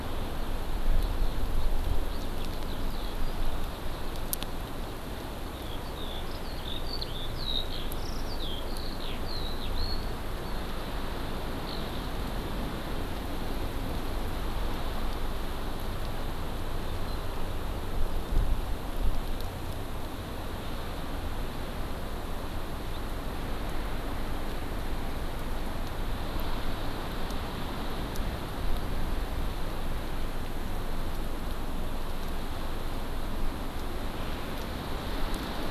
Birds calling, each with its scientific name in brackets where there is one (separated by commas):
Eurasian Skylark (Alauda arvensis)